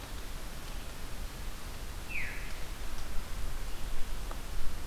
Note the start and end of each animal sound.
[1.93, 2.38] Veery (Catharus fuscescens)

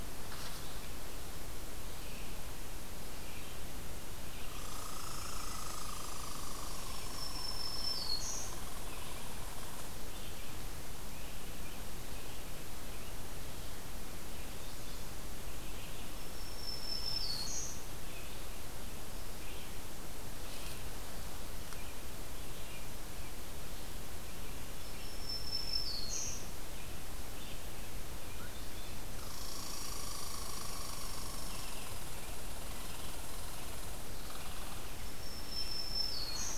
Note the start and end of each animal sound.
[0.00, 36.58] Red-eyed Vireo (Vireo olivaceus)
[4.40, 10.10] Red Squirrel (Tamiasciurus hudsonicus)
[6.90, 8.56] Black-throated Green Warbler (Setophaga virens)
[16.10, 17.86] Black-throated Green Warbler (Setophaga virens)
[24.54, 26.85] Black-throated Green Warbler (Setophaga virens)
[28.67, 34.84] Red Squirrel (Tamiasciurus hudsonicus)
[34.78, 36.58] Black-throated Green Warbler (Setophaga virens)

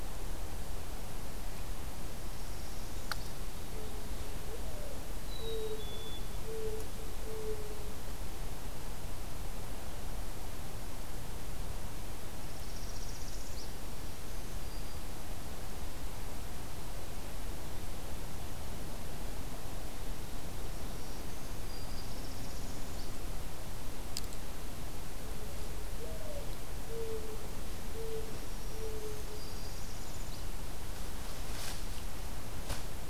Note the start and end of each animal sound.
[1.87, 3.44] Northern Parula (Setophaga americana)
[4.37, 8.17] Mourning Dove (Zenaida macroura)
[5.08, 6.42] Black-capped Chickadee (Poecile atricapillus)
[12.08, 14.16] Northern Parula (Setophaga americana)
[14.10, 15.55] Black-throated Green Warbler (Setophaga virens)
[20.47, 22.32] Black-throated Green Warbler (Setophaga virens)
[21.62, 23.20] Northern Parula (Setophaga americana)
[25.77, 29.72] Mourning Dove (Zenaida macroura)
[28.11, 29.77] Black-throated Green Warbler (Setophaga virens)
[29.15, 30.47] Northern Parula (Setophaga americana)

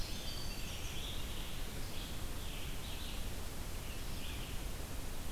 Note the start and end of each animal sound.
[0.00, 1.28] Winter Wren (Troglodytes hiemalis)
[0.00, 2.97] Scarlet Tanager (Piranga olivacea)
[0.00, 5.32] Red-eyed Vireo (Vireo olivaceus)

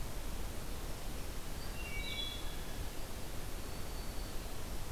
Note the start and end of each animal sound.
[1.72, 2.69] Wood Thrush (Hylocichla mustelina)
[3.23, 4.59] Black-throated Green Warbler (Setophaga virens)

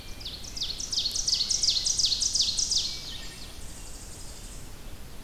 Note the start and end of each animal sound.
[0.00, 1.79] Blue Jay (Cyanocitta cristata)
[0.00, 3.30] Ovenbird (Seiurus aurocapilla)
[0.00, 5.24] Blue-headed Vireo (Vireo solitarius)
[0.00, 5.24] Red-eyed Vireo (Vireo olivaceus)
[2.70, 4.76] Tennessee Warbler (Leiothlypis peregrina)
[2.75, 3.53] Wood Thrush (Hylocichla mustelina)

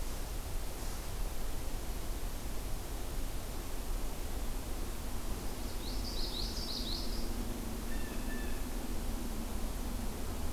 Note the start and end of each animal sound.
[5.34, 7.44] Common Yellowthroat (Geothlypis trichas)
[7.85, 8.71] Blue Jay (Cyanocitta cristata)

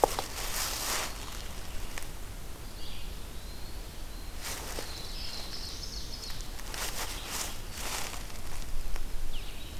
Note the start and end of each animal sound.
[0.82, 9.80] Red-eyed Vireo (Vireo olivaceus)
[2.78, 3.96] Eastern Wood-Pewee (Contopus virens)
[3.87, 6.32] Black-throated Blue Warbler (Setophaga caerulescens)
[5.19, 6.71] Ovenbird (Seiurus aurocapilla)

